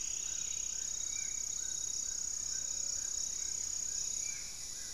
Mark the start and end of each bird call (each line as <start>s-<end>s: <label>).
0.0s-0.9s: Striped Woodcreeper (Xiphorhynchus obsoletus)
0.0s-4.6s: Spot-winged Antshrike (Pygiptila stellaris)
0.0s-4.9s: Amazonian Trogon (Trogon ramonianus)
0.0s-4.9s: Hauxwell's Thrush (Turdus hauxwelli)
2.0s-4.9s: unidentified bird
2.5s-4.9s: Gray-fronted Dove (Leptotila rufaxilla)